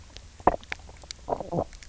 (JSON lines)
{"label": "biophony, knock croak", "recorder": "SoundTrap 300"}